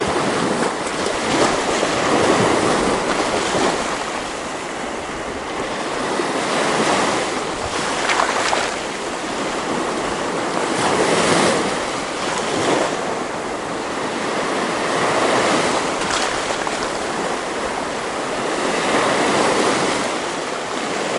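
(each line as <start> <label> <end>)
0.0 A heavy splash of water. 4.6
0.0 Distant wind rumbles softly. 21.2
0.0 Light rain falling in the distance. 21.2
6.3 Water splashes on a shore. 8.9
10.5 A heavy splash of water. 13.2
14.7 Water splashes on a shore. 17.1
18.5 Water splashes on a shore. 20.5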